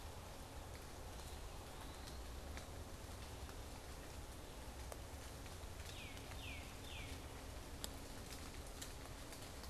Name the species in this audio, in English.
Eastern Wood-Pewee, Tufted Titmouse